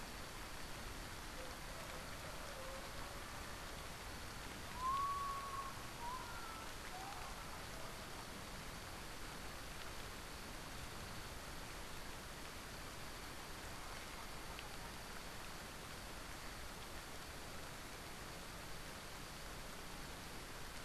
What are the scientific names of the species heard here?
Nyctibius griseus